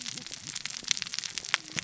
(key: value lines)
label: biophony, cascading saw
recorder: SoundTrap 600 or HydroMoth